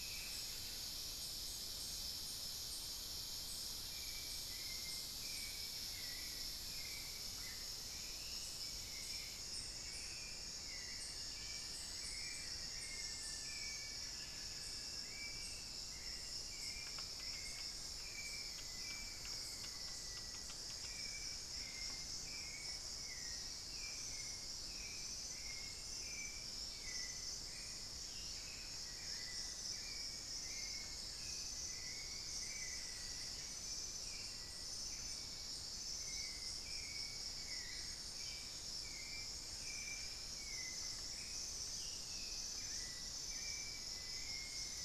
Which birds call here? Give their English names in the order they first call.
Hauxwell's Thrush, unidentified bird, Buff-throated Woodcreeper, Buff-breasted Wren, Black-faced Antthrush, Ringed Antpipit